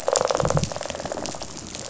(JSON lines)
{"label": "biophony, rattle response", "recorder": "SoundTrap 500"}